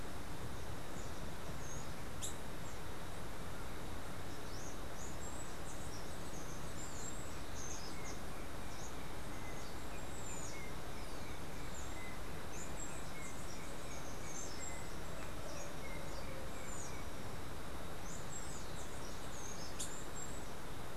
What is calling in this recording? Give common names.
unidentified bird, Steely-vented Hummingbird